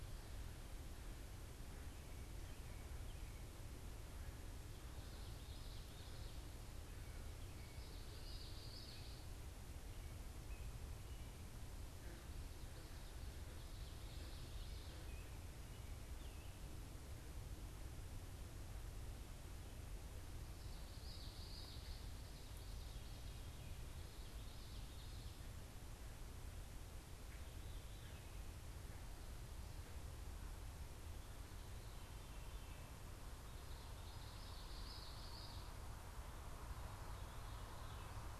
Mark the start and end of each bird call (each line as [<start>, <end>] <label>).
[4.96, 9.26] Common Yellowthroat (Geothlypis trichas)
[12.46, 15.06] Common Yellowthroat (Geothlypis trichas)
[20.46, 25.36] Common Yellowthroat (Geothlypis trichas)
[26.26, 28.46] Veery (Catharus fuscescens)
[33.16, 35.66] Common Yellowthroat (Geothlypis trichas)
[36.66, 38.36] Veery (Catharus fuscescens)